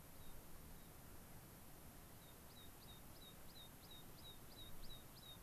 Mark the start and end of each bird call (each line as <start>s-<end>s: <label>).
1.9s-5.4s: American Pipit (Anthus rubescens)